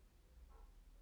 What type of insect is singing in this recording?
orthopteran